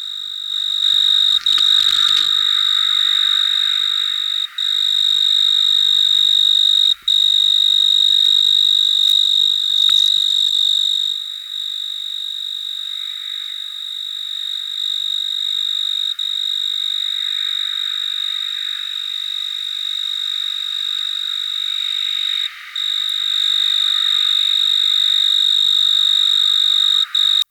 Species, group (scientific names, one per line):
Oecanthus dulcisonans
Orthoptera